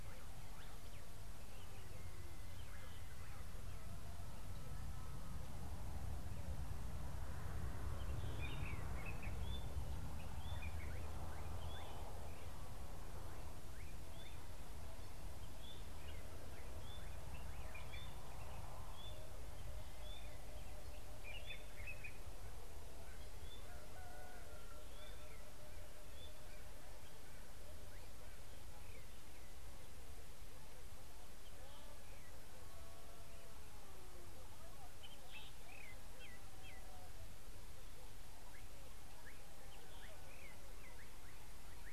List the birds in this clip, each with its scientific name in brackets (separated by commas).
White-browed Robin-Chat (Cossypha heuglini), Common Bulbul (Pycnonotus barbatus)